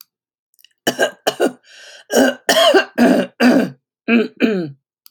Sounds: Throat clearing